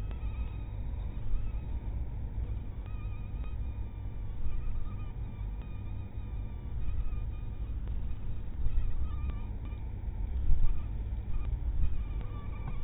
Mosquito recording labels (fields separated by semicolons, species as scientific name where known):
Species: mosquito; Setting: cup